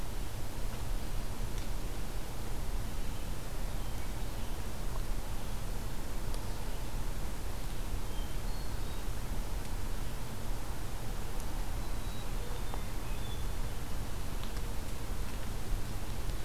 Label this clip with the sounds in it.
American Robin, Black-capped Chickadee, Hermit Thrush